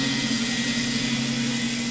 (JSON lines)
{"label": "anthrophony, boat engine", "recorder": "SoundTrap 500"}